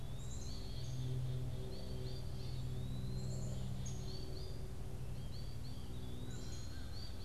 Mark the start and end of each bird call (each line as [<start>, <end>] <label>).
[0.00, 7.25] American Goldfinch (Spinus tristis)
[0.00, 7.25] Black-capped Chickadee (Poecile atricapillus)
[0.00, 7.25] Downy Woodpecker (Dryobates pubescens)
[0.00, 7.25] Eastern Wood-Pewee (Contopus virens)